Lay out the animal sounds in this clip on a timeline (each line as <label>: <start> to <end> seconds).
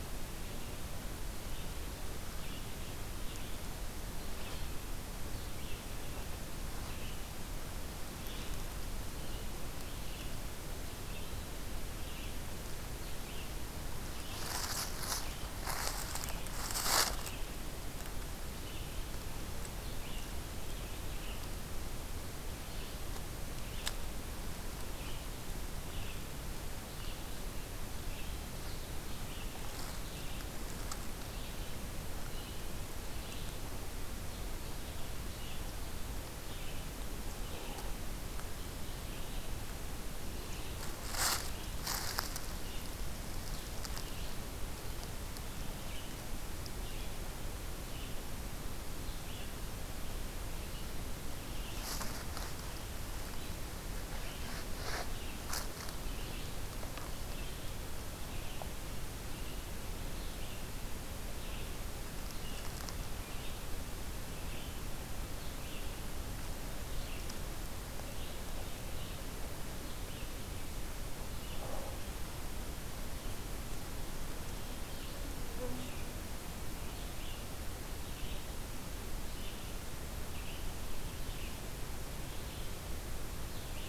Red-eyed Vireo (Vireo olivaceus): 0.0 to 72.0 seconds
Red-eyed Vireo (Vireo olivaceus): 74.9 to 83.9 seconds